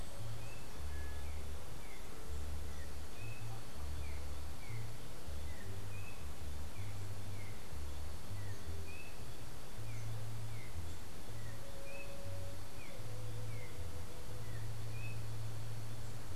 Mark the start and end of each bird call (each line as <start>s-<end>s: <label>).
0.1s-15.6s: Yellow-backed Oriole (Icterus chrysater)